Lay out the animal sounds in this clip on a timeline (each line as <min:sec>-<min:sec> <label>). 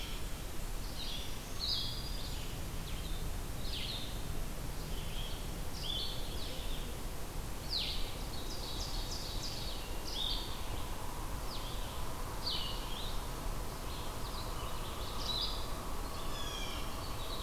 0:00.0-0:17.4 Blue-headed Vireo (Vireo solitarius)
0:01.0-0:02.9 Black-throated Green Warbler (Setophaga virens)
0:08.0-0:10.0 Ovenbird (Seiurus aurocapilla)
0:16.1-0:16.9 Blue Jay (Cyanocitta cristata)